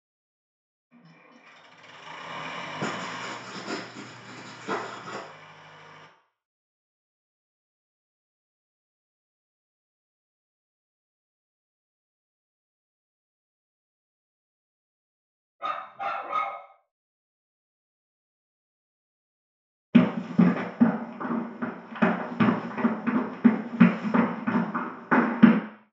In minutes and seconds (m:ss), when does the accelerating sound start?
0:01